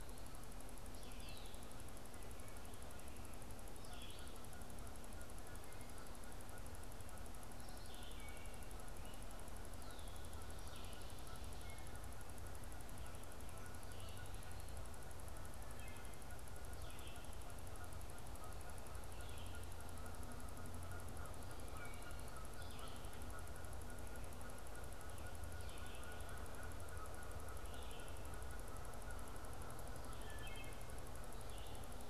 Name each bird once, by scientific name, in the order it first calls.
Vireo olivaceus, Hylocichla mustelina, Branta canadensis